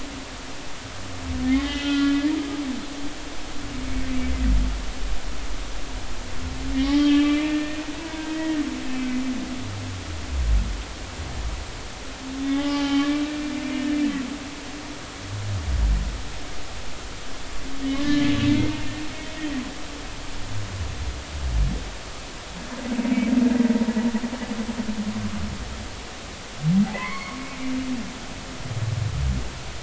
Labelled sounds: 1.4	2.2	humpback whale, 1.3 to 3.2 kHz
6.7	8.6	humpback whale, 0.90 to 3.3 kHz
12.4	14.0	humpback whale, 0.80 to 3.5 kHz
18.0	18.3	humpback whale, 1.7 to 1.8 kHz
26.9	27.4	humpback whale, 0.96 to 4.5 kHz

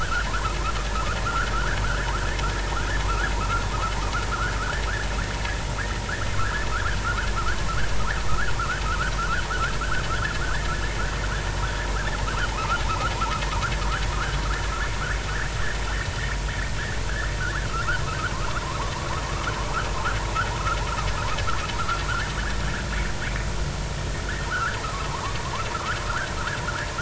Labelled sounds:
0.0	0.3	vessel noise, 1.2 to 1.7 kHz
1.2	1.8	vessel noise, 1.2 to 1.8 kHz
3.0	3.6	vessel noise, 0.99 to 1.8 kHz
4.3	4.8	vessel noise, 1.2 to 1.9 kHz
6.4	7.3	vessel noise, 1.0 to 1.8 kHz
8.3	9.1	vessel noise, 1.0 to 1.8 kHz
9.8	10.0	vessel noise, 1.2 to 1.7 kHz
10.4	10.7	vessel noise, 1.4 to 2.0 kHz
12.5	13.1	vessel noise, 0.80 to 1.5 kHz
14.1	14.4	vessel noise, 1.2 to 1.7 kHz
17.4	19.0	vessel noise, 0.80 to 1.9 kHz
24.5	26.0	vessel noise, 0.80 to 1.8 kHz

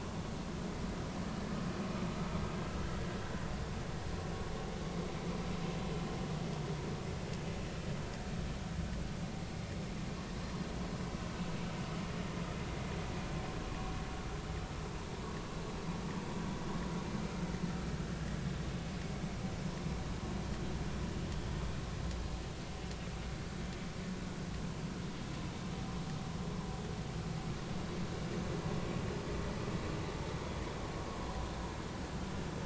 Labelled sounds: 13.7	13.9	vessel noise, 0.96 to 1.2 kHz

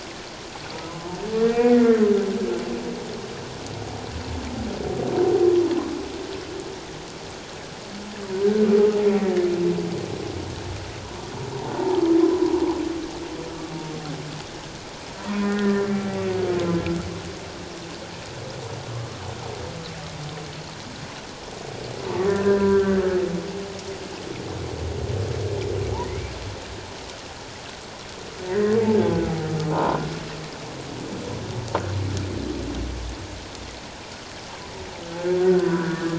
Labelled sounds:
1.4	2.0	humpback whale, 1.3 to 2.5 kHz
12.2	12.6	humpback whale, 0.88 to 1.1 kHz
15.3	16.2	humpback whale, 1.3 to 2.4 kHz
22.3	23.2	humpback whale, 0.94 to 1.8 kHz
28.4	28.8	humpback whale, 1.6 to 2.1 kHz
29.7	30.0	humpback whale, 0.88 to 1.1 kHz
35.4	36.1	humpback whale, 0.94 to 1.8 kHz

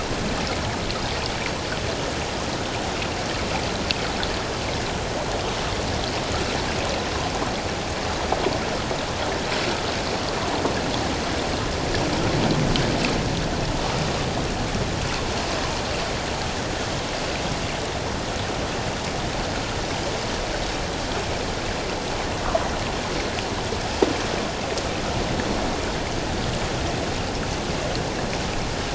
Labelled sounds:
22.4	22.7	water noise, 0.94 to 1.4 kHz

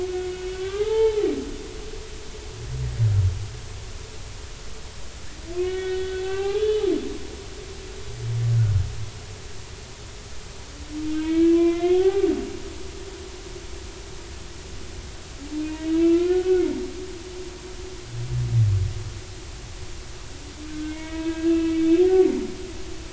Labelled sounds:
0.1	1.3	humpback whale, 0.80 to 3.2 kHz
5.6	6.8	humpback whale, 0.80 to 3.5 kHz
11.2	12.3	humpback whale, 0.80 to 2.8 kHz
16.0	16.7	humpback whale, 0.99 to 2.7 kHz
20.7	21.9	humpback whale, 1.2 to 2.7 kHz

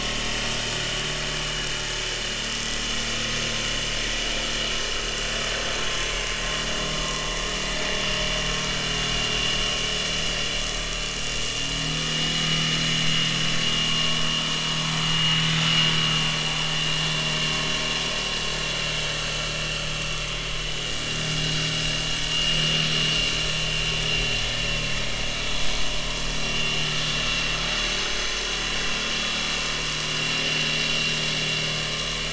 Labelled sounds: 6.1	6.4	vessel noise, 2.0 to 2.2 kHz
8.7	9.0	vessel noise, 1.5 to 1.6 kHz
13.9	14.2	vessel noise, 0.99 to 1.2 kHz
16.0	16.8	vessel noise, 6.5 to 6.7 kHz
19.7	20.1	vessel noise, 3.0 to 3.2 kHz
22.3	22.6	vessel noise, 2.8 to 3.0 kHz
25.1	25.6	vessel noise, 3.6 to 6.4 kHz
27.4	28.4	vessel noise, 6.1 to 7.5 kHz
30.1	30.3	vessel noise, 7.5 to 7.6 kHz

